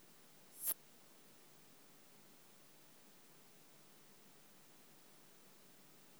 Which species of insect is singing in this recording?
Poecilimon affinis